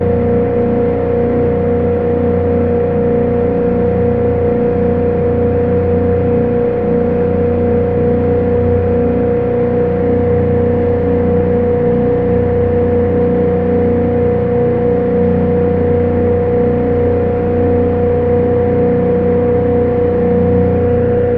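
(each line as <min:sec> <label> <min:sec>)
0:00.0 A loud, vibrating motor noise. 0:21.4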